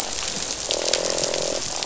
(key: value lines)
label: biophony, croak
recorder: SoundTrap 500